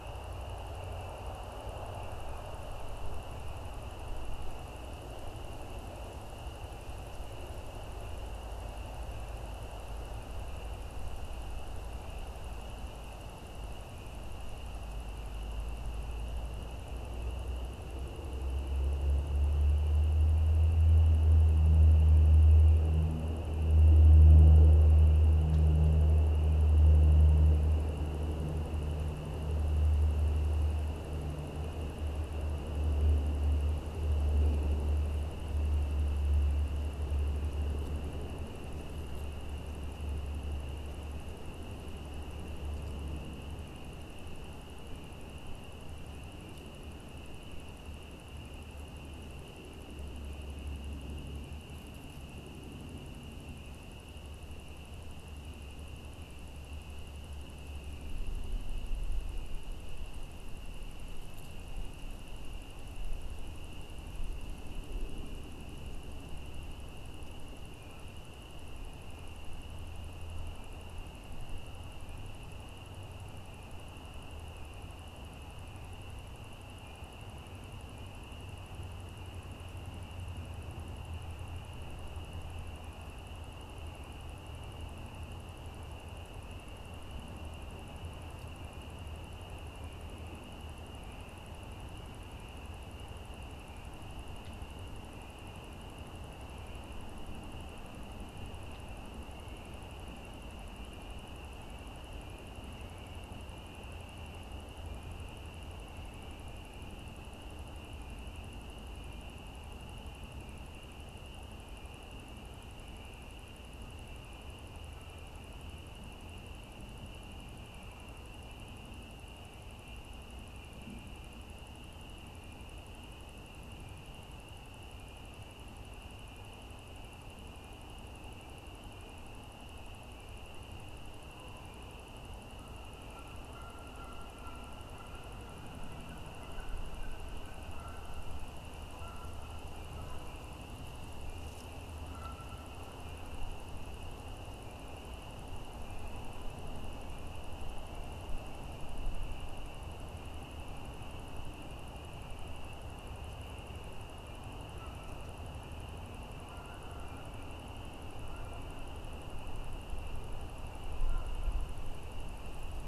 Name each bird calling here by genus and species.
Branta canadensis